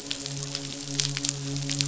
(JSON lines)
{"label": "biophony, midshipman", "recorder": "SoundTrap 500"}